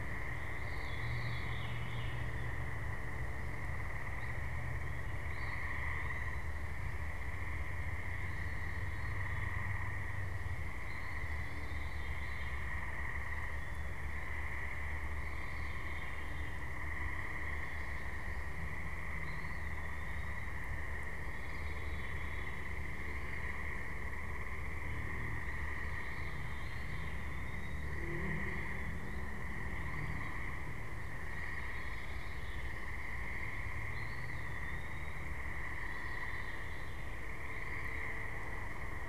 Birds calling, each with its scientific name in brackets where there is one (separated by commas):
Eastern Wood-Pewee (Contopus virens), Veery (Catharus fuscescens)